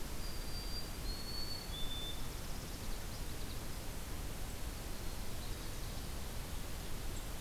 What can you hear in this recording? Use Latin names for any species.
Zonotrichia albicollis, Setophaga americana, Geothlypis trichas